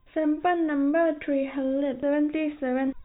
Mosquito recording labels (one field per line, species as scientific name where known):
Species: no mosquito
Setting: cup